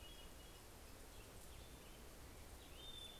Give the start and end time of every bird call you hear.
0.0s-0.9s: Hermit Thrush (Catharus guttatus)
1.4s-3.2s: Black-headed Grosbeak (Pheucticus melanocephalus)
2.3s-3.2s: Hermit Thrush (Catharus guttatus)

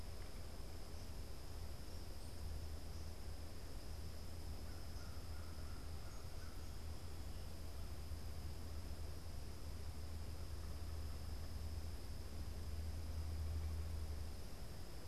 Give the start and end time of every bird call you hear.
4.3s-6.7s: American Crow (Corvus brachyrhynchos)

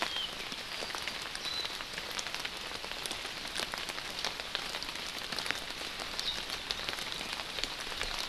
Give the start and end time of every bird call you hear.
1.4s-1.7s: Warbling White-eye (Zosterops japonicus)

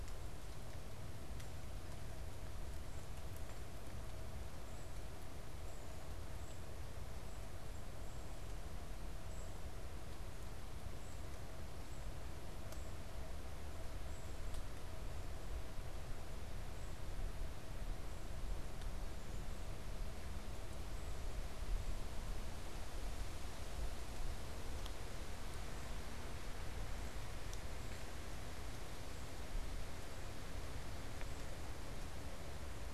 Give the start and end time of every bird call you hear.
6.2s-14.2s: Golden-crowned Kinglet (Regulus satrapa)

